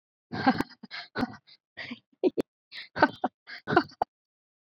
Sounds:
Laughter